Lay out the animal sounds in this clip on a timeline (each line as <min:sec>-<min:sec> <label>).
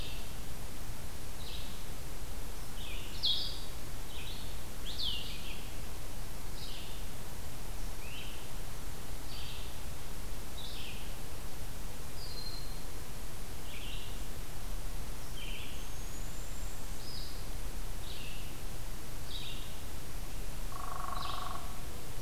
0:00.0-0:05.4 Blue-headed Vireo (Vireo solitarius)
0:00.0-0:11.0 Red-eyed Vireo (Vireo olivaceus)
0:07.9-0:08.4 Great Crested Flycatcher (Myiarchus crinitus)
0:12.0-0:21.6 Red-eyed Vireo (Vireo olivaceus)
0:15.4-0:16.9 unidentified call
0:20.6-0:21.8 Hairy Woodpecker (Dryobates villosus)